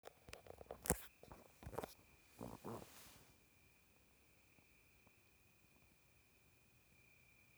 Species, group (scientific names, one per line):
Oecanthus pellucens
Orthoptera